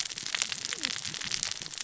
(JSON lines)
{"label": "biophony, cascading saw", "recorder": "SoundTrap 600 or HydroMoth"}